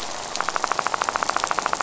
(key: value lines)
label: biophony, rattle
recorder: SoundTrap 500